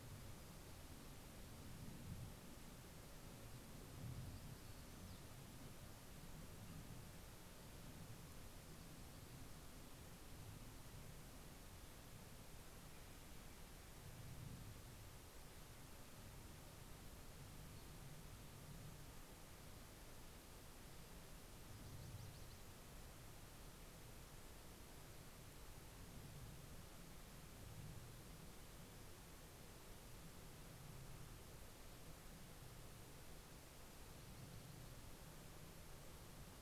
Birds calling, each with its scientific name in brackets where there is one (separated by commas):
Nashville Warbler (Leiothlypis ruficapilla)